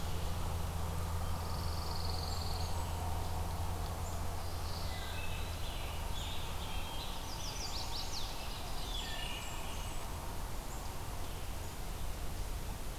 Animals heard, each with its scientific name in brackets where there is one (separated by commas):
Blackburnian Warbler (Setophaga fusca), Eastern Wood-Pewee (Contopus virens), Black-capped Chickadee (Poecile atricapillus), Pine Warbler (Setophaga pinus), Chestnut-sided Warbler (Setophaga pensylvanica), Wood Thrush (Hylocichla mustelina)